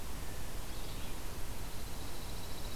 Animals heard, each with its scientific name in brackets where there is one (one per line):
Pine Warbler (Setophaga pinus)
Red-eyed Vireo (Vireo olivaceus)